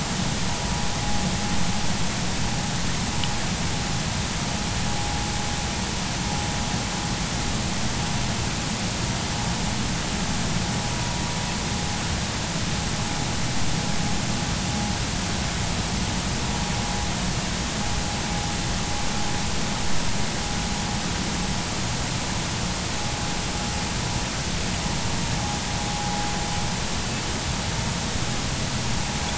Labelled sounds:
25.9	26.2	vessel noise, 0.80 to 0.90 kHz

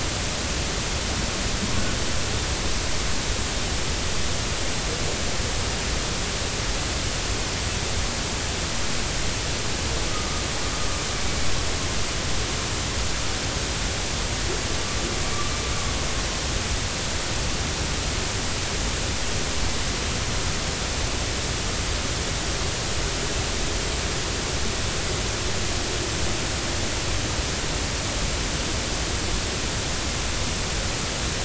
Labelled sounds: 10.1	10.4	humpback whale, 1.1 to 1.3 kHz

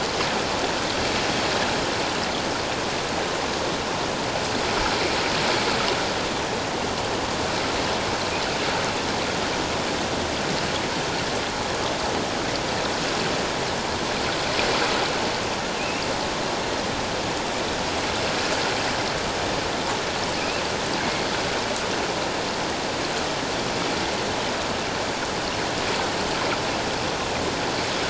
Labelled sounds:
15.8	16.0	killer whale, offshore, 2.4 to 2.8 kHz
20.4	20.6	killer whale, offshore, 2.3 to 2.8 kHz
21.0	21.3	killer whale, offshore, 2.1 to 2.3 kHz

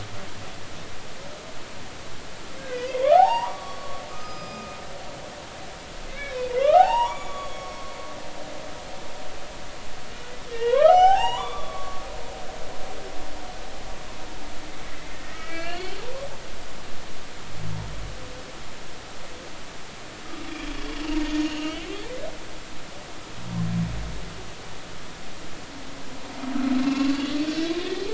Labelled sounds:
2.7	4.8	humpback whale, 0.80 to 5.9 kHz
6.1	7.9	humpback whale, 0.80 to 7.0 kHz
8.5	8.8	humpback whale, 2.18 to 2.24 kHz
10.5	12.0	humpback whale, 0.80 to 6.5 kHz
14.9	15.9	humpback whale, 1.3 to 4.6 kHz
21.4	21.9	humpback whale, 2.7 to 3.1 kHz
26.8	27.2	humpback whale, 1.0 to 2.8 kHz

